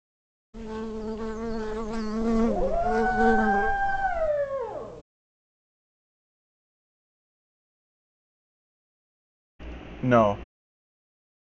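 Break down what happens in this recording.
0.53-4.29 s: you can hear buzzing
2.2-5.02 s: a dog can be heard
10.03-10.33 s: someone says "No."

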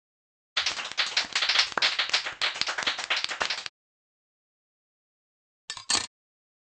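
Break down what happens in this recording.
0.56-3.7 s: you can hear applause
5.68-6.08 s: the sound of cutlery

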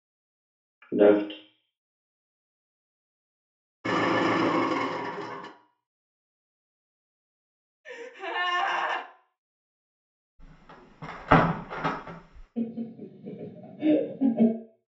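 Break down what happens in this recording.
0.92-1.32 s: someone says "Left."
3.84-5.48 s: the sound of an engine
7.84-9.02 s: someone gasps
10.39-12.47 s: a wooden window closes
12.55-14.51 s: laughter can be heard

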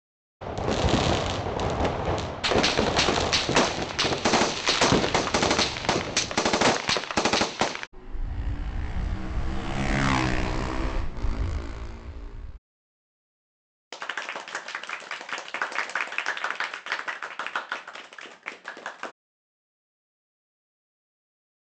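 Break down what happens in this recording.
0.4-6.4 s: the sound of fireworks
2.4-7.9 s: there is gunfire
7.9-12.6 s: you can hear a motorcycle
13.9-19.1 s: applause can be heard

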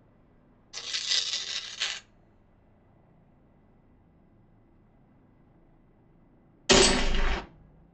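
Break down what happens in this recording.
0.73-2.01 s: the sound of tearing
6.69-7.41 s: gunfire can be heard

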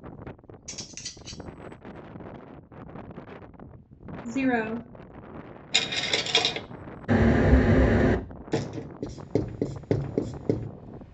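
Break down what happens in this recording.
0.68-1.36 s: cutlery is audible
4.25-4.79 s: someone says "zero"
5.71-6.59 s: a coin drops
7.08-8.16 s: wind can be heard
8.52-8.88 s: the sound of a door
8.99-10.67 s: there is writing

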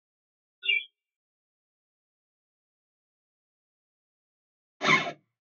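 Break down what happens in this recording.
0.62-0.88 s: a bird can be heard
4.8-5.12 s: the sound of a zipper

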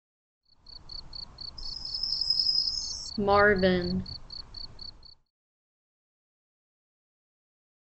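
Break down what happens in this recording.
0.39-5.33 s: the faint sound of a cricket, fading in and fading out
1.57-3.11 s: chirping is heard
3.18-4.02 s: someone says "Marvin"

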